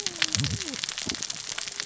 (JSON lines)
{"label": "biophony, cascading saw", "recorder": "SoundTrap 600 or HydroMoth"}